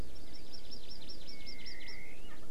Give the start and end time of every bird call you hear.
[0.18, 1.98] Hawaii Amakihi (Chlorodrepanis virens)
[2.28, 2.38] Erckel's Francolin (Pternistis erckelii)

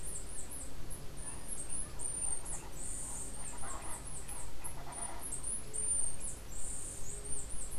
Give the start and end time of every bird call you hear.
[0.00, 7.78] Chestnut-capped Brushfinch (Arremon brunneinucha)

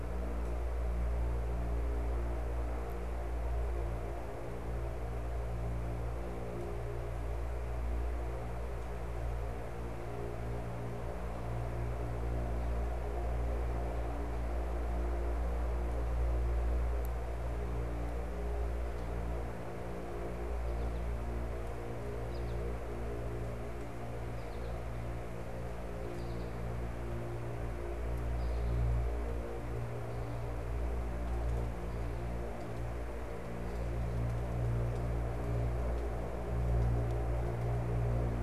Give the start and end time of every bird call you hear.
[21.89, 25.00] American Goldfinch (Spinus tristis)
[25.50, 28.89] American Goldfinch (Spinus tristis)

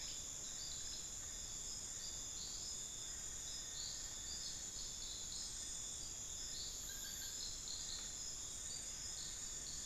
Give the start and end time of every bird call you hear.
[2.99, 4.69] Solitary Black Cacique (Cacicus solitarius)

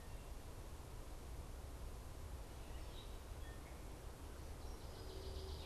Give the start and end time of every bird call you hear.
[2.73, 5.66] Gray Catbird (Dumetella carolinensis)
[4.33, 5.66] Northern Waterthrush (Parkesia noveboracensis)

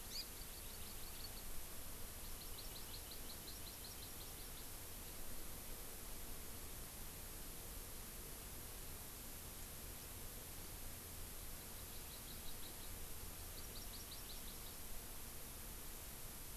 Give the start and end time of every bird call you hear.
[0.05, 1.45] Hawaii Amakihi (Chlorodrepanis virens)
[2.25, 4.65] Hawaii Amakihi (Chlorodrepanis virens)
[11.55, 13.05] Hawaii Amakihi (Chlorodrepanis virens)
[13.35, 14.85] Hawaii Amakihi (Chlorodrepanis virens)

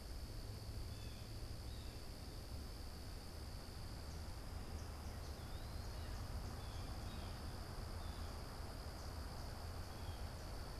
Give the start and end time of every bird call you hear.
[0.46, 2.16] Blue Jay (Cyanocitta cristata)
[4.76, 6.16] Eastern Wood-Pewee (Contopus virens)
[6.06, 10.80] Blue Jay (Cyanocitta cristata)

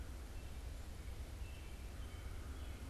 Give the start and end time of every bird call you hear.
[0.00, 2.90] unidentified bird
[1.10, 2.90] American Robin (Turdus migratorius)

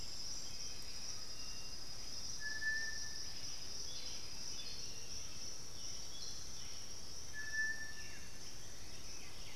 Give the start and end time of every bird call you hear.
[0.00, 1.93] Undulated Tinamou (Crypturellus undulatus)
[0.00, 9.55] Black-billed Thrush (Turdus ignobilis)
[0.00, 9.55] Striped Cuckoo (Tapera naevia)
[8.83, 9.55] White-winged Becard (Pachyramphus polychopterus)

